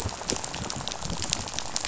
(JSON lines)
{"label": "biophony, rattle", "recorder": "SoundTrap 500"}